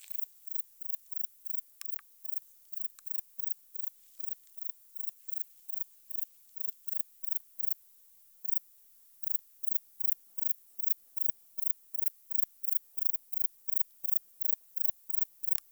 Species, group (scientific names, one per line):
Baetica ustulata
Orthoptera